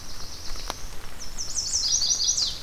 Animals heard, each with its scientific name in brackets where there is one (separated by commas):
Black-throated Blue Warbler (Setophaga caerulescens), Chestnut-sided Warbler (Setophaga pensylvanica)